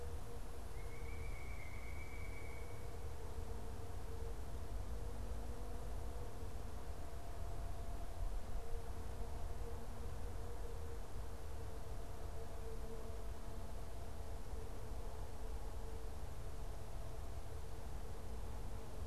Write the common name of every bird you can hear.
Pileated Woodpecker